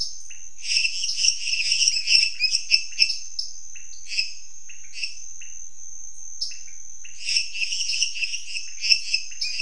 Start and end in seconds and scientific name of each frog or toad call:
0.0	5.2	Dendropsophus minutus
0.0	6.9	Leptodactylus podicipinus
3.3	3.7	Dendropsophus nanus
7.1	9.6	Dendropsophus minutus